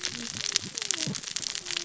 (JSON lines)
{"label": "biophony, cascading saw", "recorder": "SoundTrap 600 or HydroMoth"}